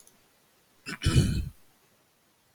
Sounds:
Throat clearing